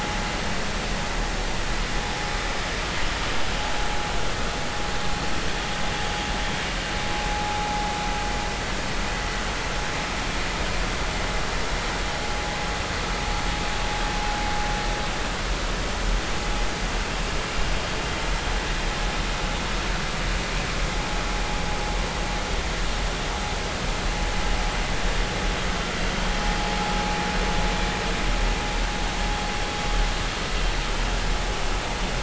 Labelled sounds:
27.0	27.3	vessel noise, 2.3 to 2.5 kHz

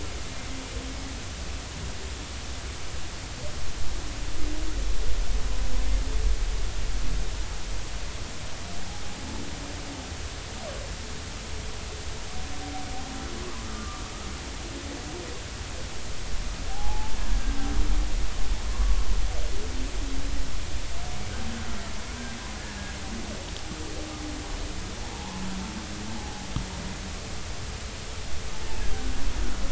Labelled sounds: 13.7	14.0	humpback whale, 1.1 to 1.3 kHz
16.7	17.2	humpback whale, 0.80 to 0.99 kHz
25.1	25.4	humpback whale, 0.80 to 1.1 kHz

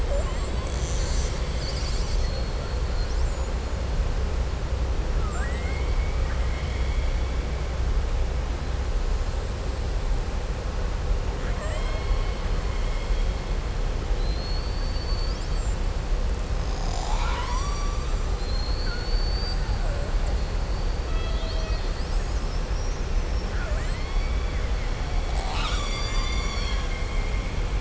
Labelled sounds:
11.3	13.3	killer whale, southern resident, 0.61 to 4.3 kHz
14.1	15.8	killer whale, southern resident, 4.0 to 7.9 kHz
18.3	19.6	killer whale, southern resident, 4.0 to 4.7 kHz
23.4	24.3	killer whale, southern resident, 0.61 to 3.1 kHz

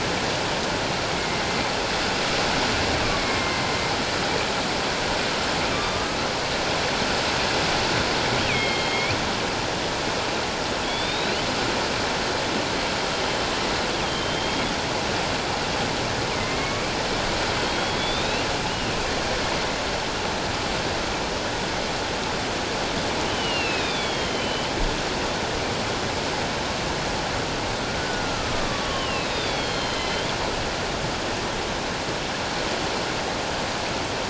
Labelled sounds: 1.2	1.4	killer whale, northern resident, G clan, 2.0 to 2.2 kHz
3.2	3.6	killer whale, northern resident, A clan, AA subclan, 2.0 to 2.2 kHz
5.7	6.2	killer whale, northern resident, A clan, AA subclan, 1.1 to 3.7 kHz
8.5	9.2	killer whale, northern resident, A clan, AA subclan, 2.1 to 3.5 kHz
10.8	11.4	killer whale, northern resident, A clan, AA subclan, 3.3 to 4.2 kHz
14.0	14.7	killer whale, northern resident, A clan, AA subclan, 3.0 to 3.4 kHz
16.4	16.8	killer whale, northern resident, A clan, AA subclan, 2.0 to 2.2 kHz
17.6	18.9	killer whale, northern resident, A clan, AA subclan, 2.4 to 4.0 kHz
23.3	24.0	killer whale, northern resident, A clan, AA subclan, 2.3 to 4.2 kHz
23.5	24.7	killer whale, northern resident, A clan, AA subclan, A04 pod, 1.8 to 4.2 kHz
28.0	30.3	killer whale, northern resident, A clan, AA subclan, A04 pod, 1.0 to 5.0 kHz

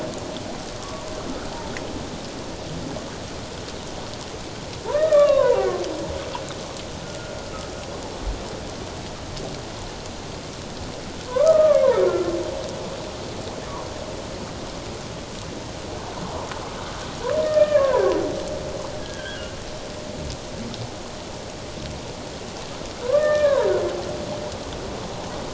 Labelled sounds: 4.9	5.6	humpback whale, 0.91 to 1.9 kHz
7.0	7.4	humpback whale, 1.4 to 1.5 kHz
11.3	12.3	humpback whale, 0.94 to 1.8 kHz
17.4	18.1	humpback whale, 0.84 to 2.5 kHz
19.0	19.5	humpback whale, 1.3 to 3.4 kHz
23.0	23.7	humpback whale, 0.88 to 1.9 kHz

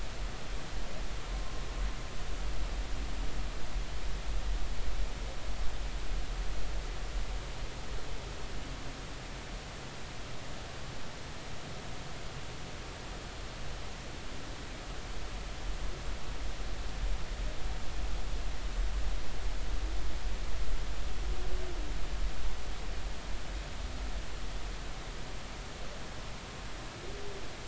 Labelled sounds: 1.3	1.6	humpback whale, 0.93 to 1.1 kHz

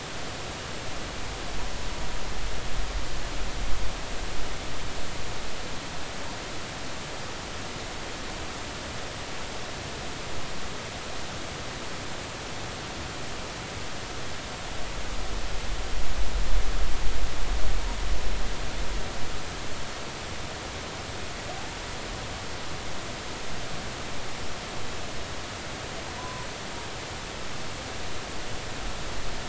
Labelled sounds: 26.1	26.5	humpback whale, 0.93 to 1.1 kHz

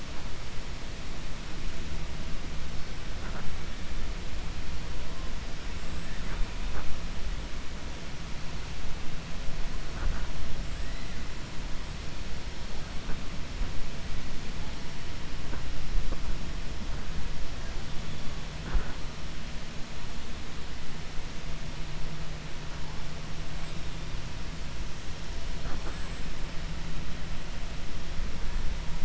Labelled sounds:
25.8	26.2	killer whale, 7.1 to 8.0 kHz

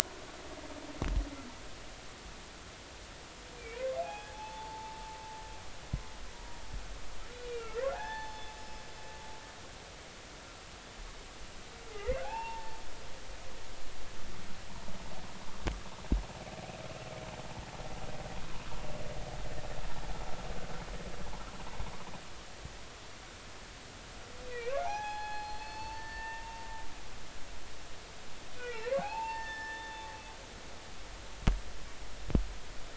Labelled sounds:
3.7	5.0	humpback whale, 0.80 to 2.6 kHz
6.3	6.6	humpback whale, 0.93 to 0.99 kHz
7.3	8.8	humpback whale, 0.80 to 5.3 kHz
11.9	12.8	humpback whale, 0.80 to 2.8 kHz
24.4	26.6	humpback whale, 0.80 to 4.5 kHz
28.6	30.5	humpback whale, 0.80 to 5.4 kHz

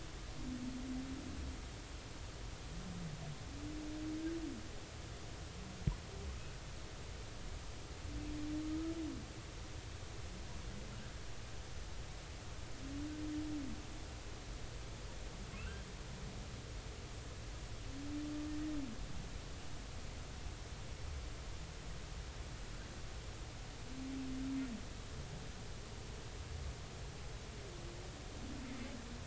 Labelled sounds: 15.6	15.8	humpback whale, 1.2 to 1.8 kHz

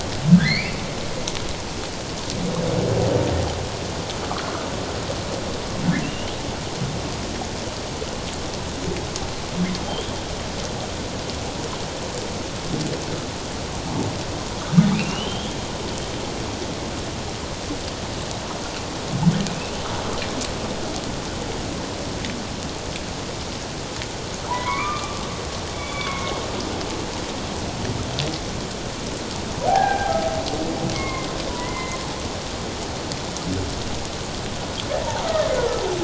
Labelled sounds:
0.3	0.8	humpback whale, 1.5 to 4.9 kHz
6.0	6.3	humpback whale, 2.6 to 3.0 kHz
14.9	15.6	humpback whale, 2.3 to 3.4 kHz
19.5	19.8	humpback whale, 2.4 to 2.8 kHz
24.5	26.4	humpback whale, 0.78 to 3.7 kHz
29.7	30.2	humpback whale, 0.78 to 1.8 kHz
30.9	32.0	humpback whale, 0.94 to 2.2 kHz
35.5	35.8	humpback whale, 1.3 to 1.5 kHz

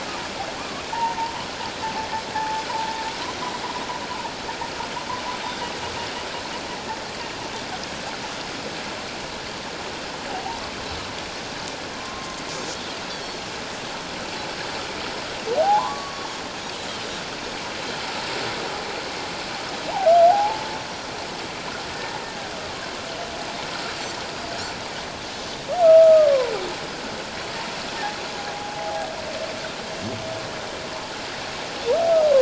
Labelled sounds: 2.3	2.6	humpback whale, 0.81 to 0.91 kHz
12.0	12.4	humpback whale, 1.0 to 1.1 kHz
13.1	13.3	Pacific white-sided dolphin, 3.2 to 3.6 kHz
15.6	16.4	humpback whale, 0.78 to 1.2 kHz
20.3	20.7	humpback whale, 0.78 to 0.94 kHz
25.8	26.3	humpback whale, 1.2 to 1.4 kHz
28.8	29.1	humpback whale, 0.78 to 0.88 kHz

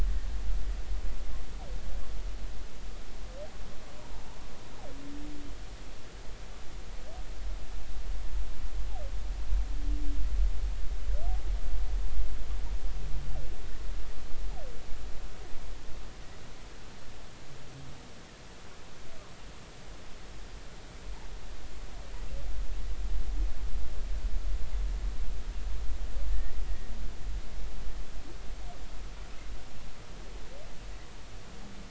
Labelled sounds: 4.1	4.4	humpback whale, 0.83 to 1.0 kHz
26.3	26.6	humpback whale, 1.7 to 2.0 kHz

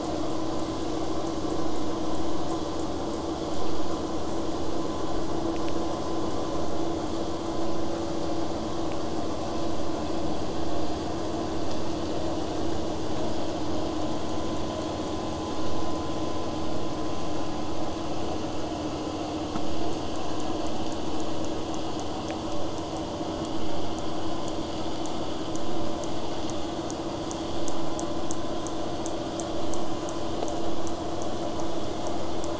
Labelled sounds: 0.0	3.7	killer whale, southern resident, J pod, 5.4 to 8.0 kHz

